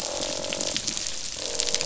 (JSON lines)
{"label": "biophony, croak", "recorder": "SoundTrap 500"}